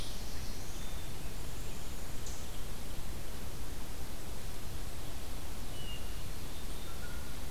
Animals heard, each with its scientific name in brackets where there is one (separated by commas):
Black-throated Blue Warbler (Setophaga caerulescens), Eastern Chipmunk (Tamias striatus), Black-capped Chickadee (Poecile atricapillus), Blue Jay (Cyanocitta cristata), Red-eyed Vireo (Vireo olivaceus), Hermit Thrush (Catharus guttatus)